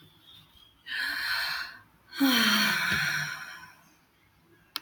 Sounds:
Sigh